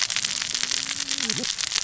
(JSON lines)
{"label": "biophony, cascading saw", "recorder": "SoundTrap 600 or HydroMoth"}